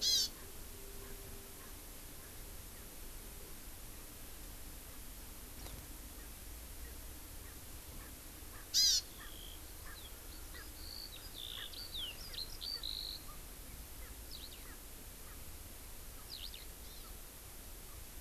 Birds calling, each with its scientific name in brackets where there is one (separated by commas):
Eurasian Skylark (Alauda arvensis), Hawaii Amakihi (Chlorodrepanis virens), Erckel's Francolin (Pternistis erckelii)